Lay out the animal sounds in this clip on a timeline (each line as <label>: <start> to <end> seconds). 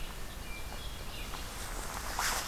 Red-eyed Vireo (Vireo olivaceus): 0.0 to 2.5 seconds
Hermit Thrush (Catharus guttatus): 0.3 to 1.7 seconds